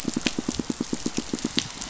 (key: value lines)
label: biophony, pulse
recorder: SoundTrap 500